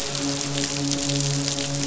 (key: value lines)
label: biophony, midshipman
recorder: SoundTrap 500